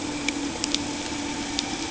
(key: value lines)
label: anthrophony, boat engine
recorder: HydroMoth